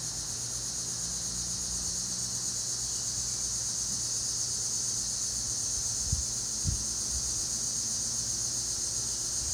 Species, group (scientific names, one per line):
Neotibicen linnei
Cicadidae